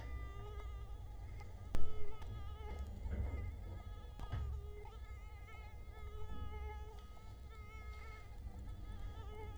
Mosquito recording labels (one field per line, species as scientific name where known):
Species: Culex quinquefasciatus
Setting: cup